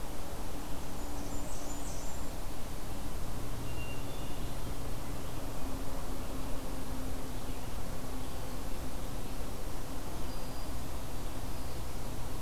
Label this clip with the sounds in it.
Blackburnian Warbler, Hermit Thrush, Black-throated Green Warbler